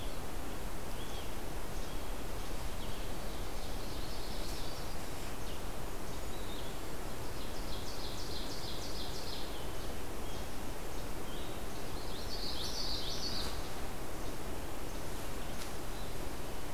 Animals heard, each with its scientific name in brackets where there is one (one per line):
Red-eyed Vireo (Vireo olivaceus)
Least Flycatcher (Empidonax minimus)
Common Yellowthroat (Geothlypis trichas)
Golden-crowned Kinglet (Regulus satrapa)
Ovenbird (Seiurus aurocapilla)